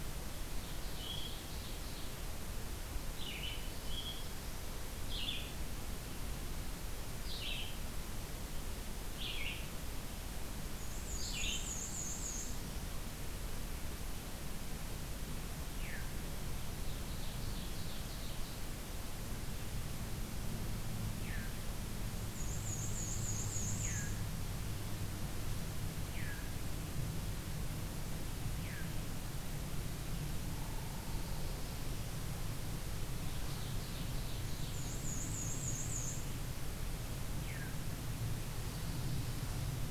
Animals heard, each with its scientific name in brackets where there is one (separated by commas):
Veery (Catharus fuscescens), Black-throated Blue Warbler (Setophaga caerulescens), Ovenbird (Seiurus aurocapilla), Black-and-white Warbler (Mniotilta varia), Red-eyed Vireo (Vireo olivaceus)